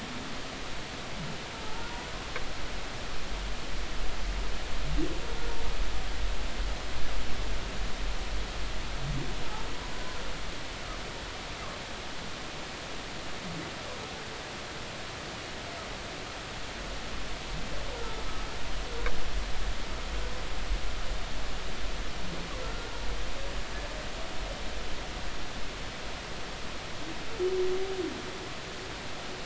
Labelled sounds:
1.5	2.1	humpback whale, 0.83 to 0.99 kHz
22.6	22.9	humpback whale, 1.3 to 1.5 kHz

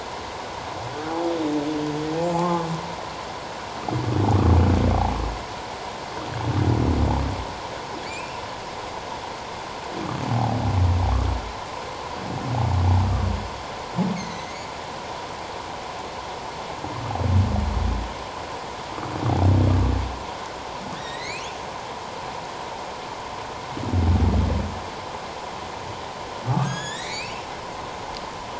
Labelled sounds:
2.3	2.6	humpback whale, 0.78 to 1.1 kHz
8.0	8.4	humpback whale, 2.2 to 2.8 kHz
14.2	14.7	humpback whale, 1.9 to 7.0 kHz
21.0	21.5	humpback whale, 1.7 to 4.7 kHz
26.5	27.4	humpback whale, 1.1 to 7.8 kHz

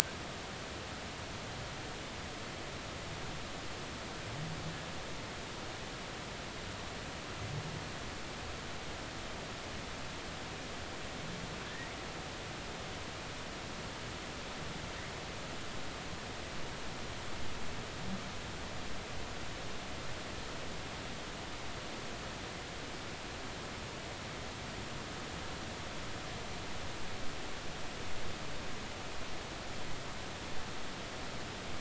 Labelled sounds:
11.7	11.9	humpback whale, 1.6 to 2.0 kHz

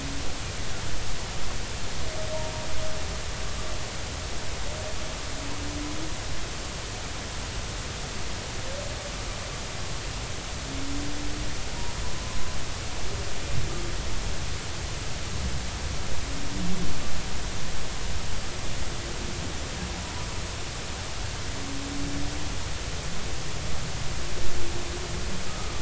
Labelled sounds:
25.5	25.7	humpback whale, 1.2 to 1.3 kHz

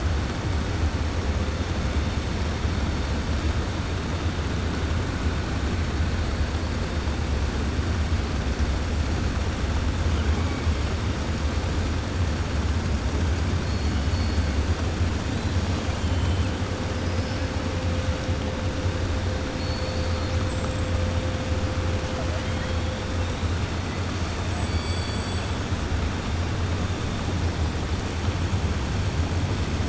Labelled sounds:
15.7	16.5	killer whale, 2.3 to 4.1 kHz
19.5	20.4	killer whale, 3.4 to 5.1 kHz
24.4	25.5	killer whale, 2.7 to 8.0 kHz

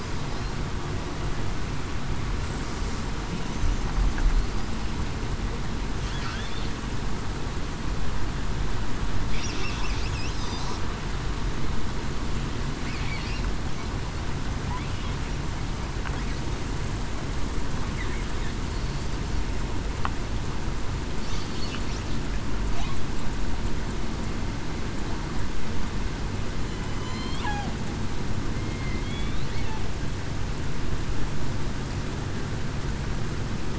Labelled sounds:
27.0	27.4	killer whale, southern resident, 3.0 to 4.3 kHz
28.5	29.4	killer whale, southern resident, 2.0 to 2.4 kHz

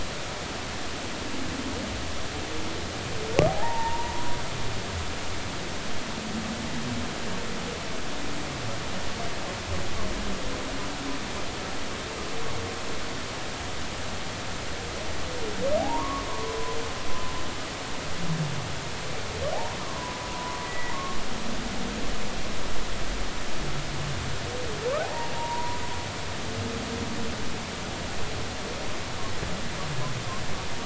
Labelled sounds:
3.5	4.1	humpback whale, 0.80 to 0.99 kHz
15.8	16.8	humpback whale, 0.80 to 1.3 kHz
20.3	21.2	humpback whale, 0.93 to 2.0 kHz
25.0	25.8	humpback whale, 0.80 to 1.0 kHz

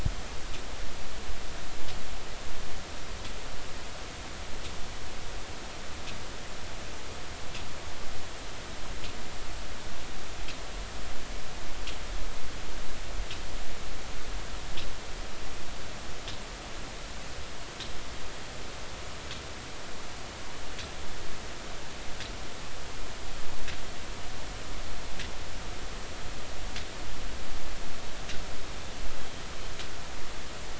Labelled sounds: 29.2	29.5	killer whale, northern resident, A clan, AA subclan, call N04, 3.1 to 3.3 kHz

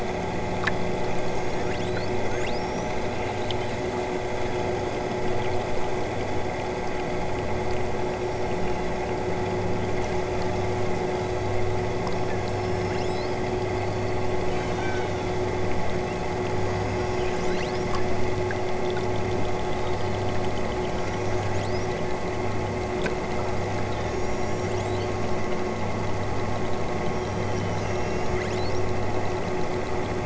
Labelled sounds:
1.0	3.1	killer whale, southern Alaska resident, 3.6 to 8.0 kHz
7.9	9.2	killer whale, southern Alaska resident, 3.8 to 6.0 kHz
12.1	13.4	killer whale, southern Alaska resident, 3.6 to 8.0 kHz
14.3	15.5	killer whale, southern Alaska resident, 2.4 to 8.0 kHz
16.7	17.9	killer whale, southern Alaska resident, 2.6 to 8.0 kHz
19.7	20.3	killer whale, southern Alaska resident, 2.7 to 5.5 kHz
20.9	21.9	killer whale, southern Alaska resident, 2.5 to 8.0 kHz
24.0	25.2	killer whale, southern Alaska resident, 2.5 to 8.0 kHz
27.0	28.9	killer whale, southern Alaska resident, 2.5 to 8.0 kHz

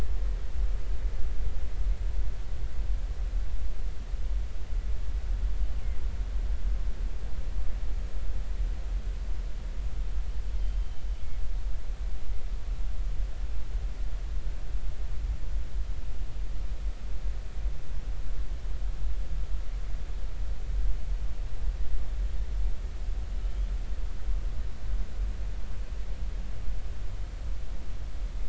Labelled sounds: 10.6	11.0	killer whale, northern resident, G clan, GG subclan, call N23ii, 3.0 to 3.2 kHz

